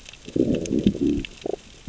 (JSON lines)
{"label": "biophony, growl", "recorder": "SoundTrap 600 or HydroMoth"}